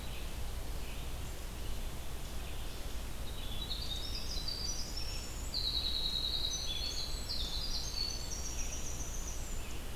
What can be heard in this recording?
Red-eyed Vireo, Winter Wren